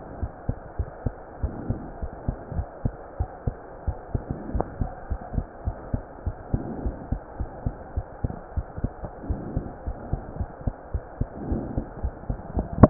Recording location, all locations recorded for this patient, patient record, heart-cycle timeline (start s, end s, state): pulmonary valve (PV)
aortic valve (AV)+pulmonary valve (PV)+tricuspid valve (TV)+mitral valve (MV)
#Age: Child
#Sex: Female
#Height: 95.0 cm
#Weight: 13.6 kg
#Pregnancy status: False
#Murmur: Absent
#Murmur locations: nan
#Most audible location: nan
#Systolic murmur timing: nan
#Systolic murmur shape: nan
#Systolic murmur grading: nan
#Systolic murmur pitch: nan
#Systolic murmur quality: nan
#Diastolic murmur timing: nan
#Diastolic murmur shape: nan
#Diastolic murmur grading: nan
#Diastolic murmur pitch: nan
#Diastolic murmur quality: nan
#Outcome: Abnormal
#Campaign: 2015 screening campaign
0.00	0.18	unannotated
0.18	0.30	S1
0.30	0.44	systole
0.44	0.56	S2
0.56	0.74	diastole
0.74	0.88	S1
0.88	1.04	systole
1.04	1.16	S2
1.16	1.38	diastole
1.38	1.52	S1
1.52	1.66	systole
1.66	1.80	S2
1.80	1.98	diastole
1.98	2.10	S1
2.10	2.24	systole
2.24	2.36	S2
2.36	2.52	diastole
2.52	2.66	S1
2.66	2.83	systole
2.83	2.94	S2
2.94	3.16	diastole
3.16	3.30	S1
3.30	3.45	systole
3.45	3.56	S2
3.56	3.80	diastole
3.80	3.96	S1
3.96	4.10	systole
4.10	4.26	S2
4.26	4.50	diastole
4.50	4.66	S1
4.66	4.78	systole
4.78	4.92	S2
4.92	5.08	diastole
5.08	5.20	S1
5.20	5.34	systole
5.34	5.48	S2
5.48	5.64	diastole
5.64	5.76	S1
5.76	5.91	systole
5.91	6.04	S2
6.04	6.24	diastole
6.24	6.36	S1
6.36	6.52	systole
6.52	6.66	S2
6.66	6.82	diastole
6.82	6.96	S1
6.96	7.08	systole
7.08	7.22	S2
7.22	7.36	diastole
7.36	7.50	S1
7.50	7.62	systole
7.62	7.76	S2
7.76	7.94	diastole
7.94	8.04	S1
8.04	8.20	systole
8.20	8.34	S2
8.34	8.54	diastole
8.54	8.68	S1
8.68	8.81	systole
8.81	8.91	S2
8.91	9.28	diastole
9.28	9.42	S1
9.42	9.54	systole
9.54	9.66	S2
9.66	9.86	diastole
9.86	9.96	S1
9.96	10.10	systole
10.10	10.24	S2
10.24	10.38	diastole
10.38	10.48	S1
10.48	10.62	systole
10.62	10.74	S2
10.74	10.92	diastole
10.92	11.02	S1
11.02	11.18	systole
11.18	11.28	S2
11.28	11.46	diastole
11.46	11.62	S1
11.62	11.72	systole
11.72	11.84	S2
11.84	12.02	diastole
12.02	12.14	S1
12.14	12.28	systole
12.28	12.40	S2
12.40	12.54	diastole
12.54	12.68	S1
12.68	12.90	unannotated